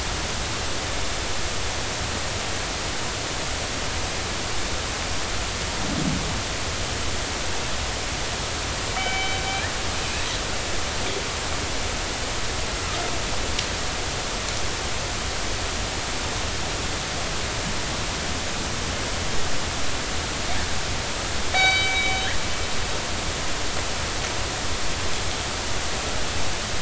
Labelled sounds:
9.0	9.4	killer whale, northern resident, G clan, 2.2 to 3.1 kHz
10.0	10.3	killer whale, northern resident, G clan, 2.4 to 2.7 kHz
21.5	22.2	killer whale, northern resident, G clan, 1.5 to 4.7 kHz

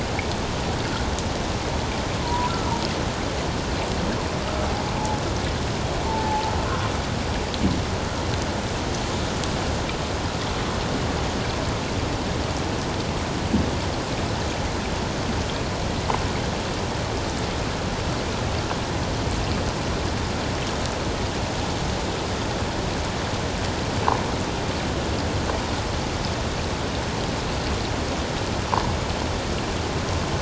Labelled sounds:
2.2	2.7	humpback whale, 0.91 to 1.4 kHz
6.1	6.5	humpback whale, 0.81 to 0.94 kHz

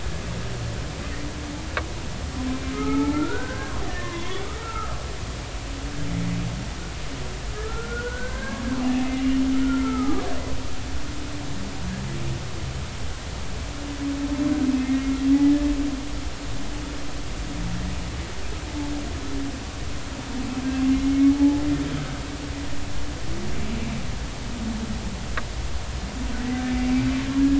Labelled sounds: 2.7	4.4	humpback whale, 0.80 to 2.3 kHz
4.6	5.0	humpback whale, 1.1 to 1.4 kHz
7.5	8.6	humpback whale, 0.99 to 2.2 kHz
9.1	10.2	humpback whale, 1.1 to 3.1 kHz
14.8	15.1	humpback whale, 1.8 to 2.0 kHz
20.9	21.6	humpback whale, 0.80 to 2.2 kHz

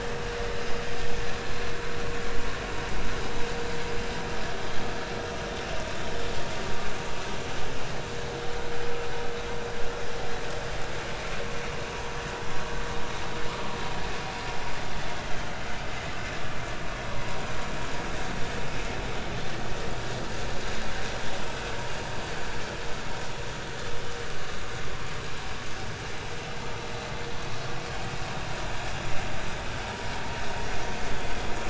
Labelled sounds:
15.3	15.6	vessel noise, 3.0 to 3.2 kHz

